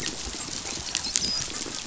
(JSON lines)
{"label": "biophony, dolphin", "recorder": "SoundTrap 500"}